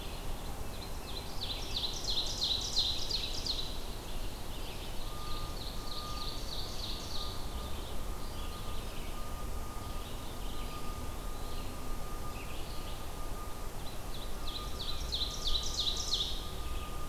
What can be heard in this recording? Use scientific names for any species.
Vireo olivaceus, Seiurus aurocapilla, Contopus virens